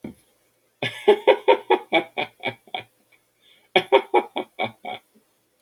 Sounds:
Laughter